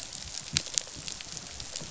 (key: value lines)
label: biophony, rattle response
recorder: SoundTrap 500